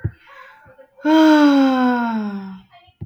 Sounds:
Sigh